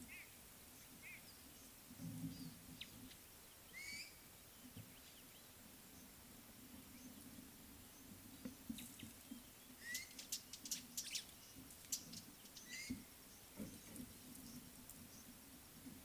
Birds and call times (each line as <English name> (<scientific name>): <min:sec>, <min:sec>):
Lesser Masked-Weaver (Ploceus intermedius): 0:10.3
White-browed Sparrow-Weaver (Plocepasser mahali): 0:11.1